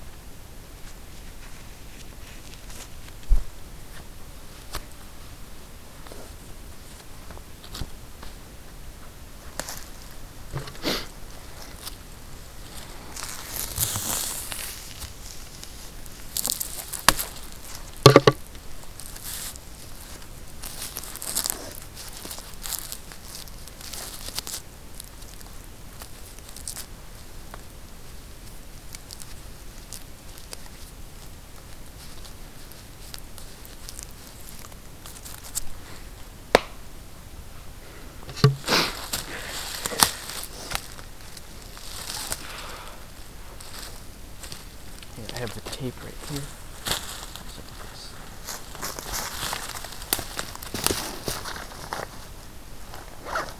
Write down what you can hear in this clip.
forest ambience